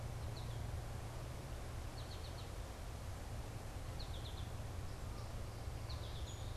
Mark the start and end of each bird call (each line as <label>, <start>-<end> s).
American Goldfinch (Spinus tristis), 0.0-6.6 s